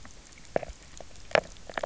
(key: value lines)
label: biophony, knock croak
recorder: SoundTrap 300